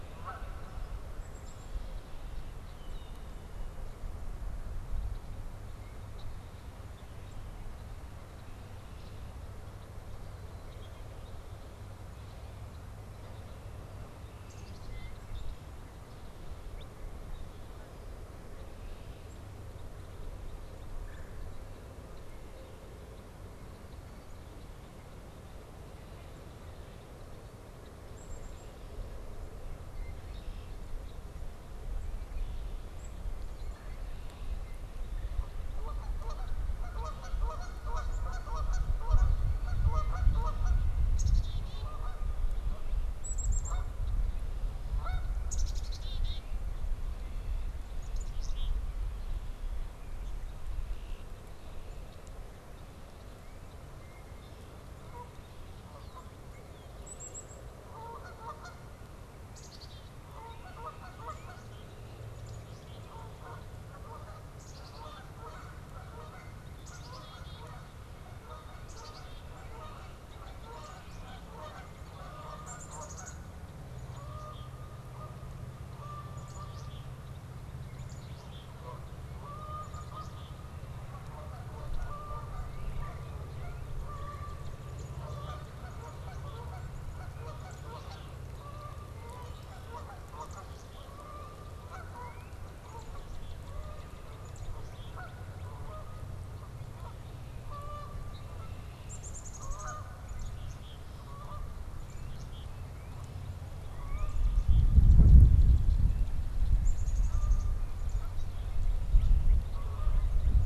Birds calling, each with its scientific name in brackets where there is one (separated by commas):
Red-winged Blackbird (Agelaius phoeniceus), Black-capped Chickadee (Poecile atricapillus), Canada Goose (Branta canadensis), Red-bellied Woodpecker (Melanerpes carolinus), Northern Cardinal (Cardinalis cardinalis)